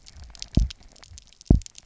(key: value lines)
label: biophony, double pulse
recorder: SoundTrap 300